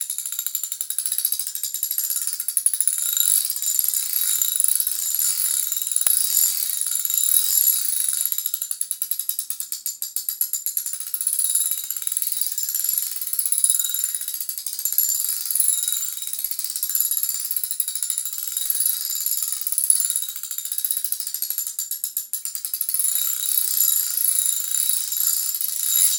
Is someone doing something?
yes